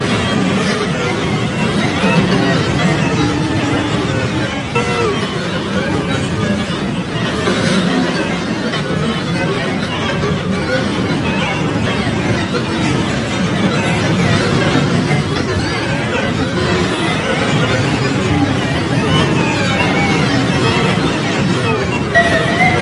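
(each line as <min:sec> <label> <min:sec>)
0:00.0 A mixture of synthetic, robotic-sounding tones with indistinct background noise. 0:22.8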